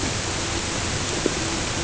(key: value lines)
label: ambient
recorder: HydroMoth